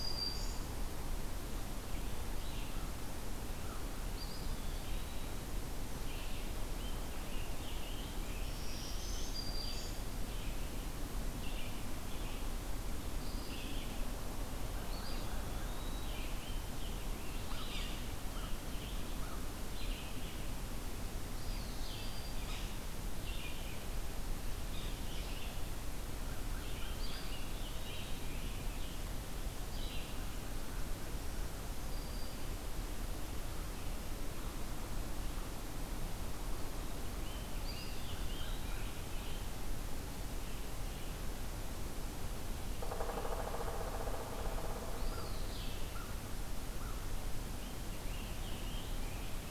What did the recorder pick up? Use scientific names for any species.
Setophaga virens, Vireo olivaceus, Contopus virens, Piranga olivacea, Corvus brachyrhynchos, Dryocopus pileatus